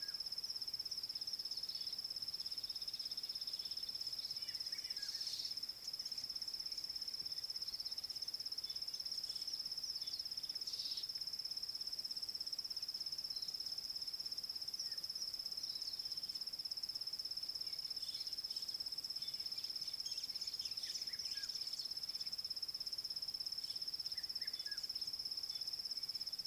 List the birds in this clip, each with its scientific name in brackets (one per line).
White-browed Sparrow-Weaver (Plocepasser mahali)